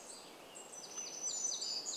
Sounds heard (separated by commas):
Western Tanager song, unidentified bird chip note, warbler song